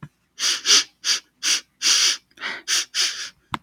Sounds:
Sniff